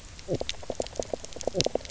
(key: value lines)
label: biophony, knock croak
recorder: SoundTrap 300